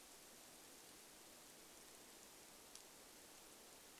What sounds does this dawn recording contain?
rain